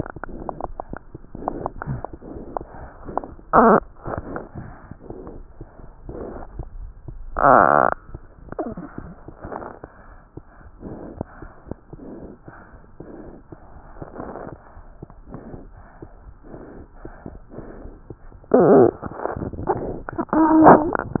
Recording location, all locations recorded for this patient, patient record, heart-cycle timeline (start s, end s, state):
aortic valve (AV)
aortic valve (AV)+pulmonary valve (PV)+tricuspid valve (TV)+mitral valve (MV)
#Age: Infant
#Sex: Female
#Height: 75.0 cm
#Weight: 9.5 kg
#Pregnancy status: False
#Murmur: Absent
#Murmur locations: nan
#Most audible location: nan
#Systolic murmur timing: nan
#Systolic murmur shape: nan
#Systolic murmur grading: nan
#Systolic murmur pitch: nan
#Systolic murmur quality: nan
#Diastolic murmur timing: nan
#Diastolic murmur shape: nan
#Diastolic murmur grading: nan
#Diastolic murmur pitch: nan
#Diastolic murmur quality: nan
#Outcome: Normal
#Campaign: 2015 screening campaign
0.00	11.14	unannotated
11.14	11.22	S1
11.22	11.38	systole
11.38	11.49	S2
11.49	11.66	diastole
11.66	11.76	S1
11.76	11.91	systole
11.91	11.98	S2
11.98	12.17	diastole
12.17	12.32	S1
12.32	12.44	systole
12.44	12.54	S2
12.54	12.71	diastole
12.71	12.79	S1
12.79	12.98	systole
12.98	13.06	S2
13.06	13.25	diastole
13.25	13.31	S1
13.31	13.50	systole
13.50	13.55	S2
13.55	13.76	diastole
13.76	13.82	S1
13.82	14.00	systole
14.00	14.05	S2
14.05	14.18	diastole
14.18	14.23	S1
14.23	21.20	unannotated